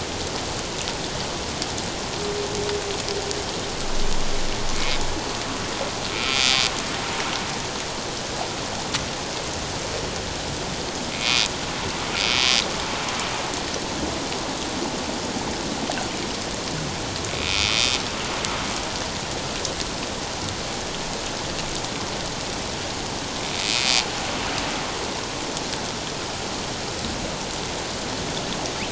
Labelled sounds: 4.7	5.0	humpback whale, 2.1 to 2.5 kHz
6.1	6.5	humpback whale, 2.2 to 2.5 kHz
11.1	11.5	humpback whale, 2.1 to 2.6 kHz
17.4	17.8	humpback whale, 2.4 to 2.6 kHz
23.6	24.0	humpback whale, 2.4 to 2.6 kHz

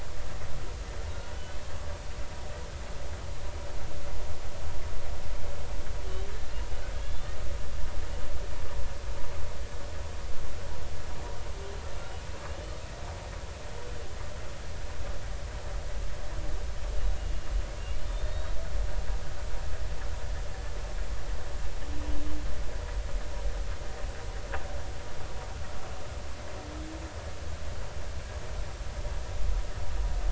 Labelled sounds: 1.1	1.6	humpback whale, 1.4 to 3.1 kHz
7.0	7.4	humpback whale, 3.2 to 3.8 kHz
18.0	18.6	humpback whale, 3.6 to 4.5 kHz

